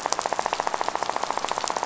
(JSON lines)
{"label": "biophony, rattle", "recorder": "SoundTrap 500"}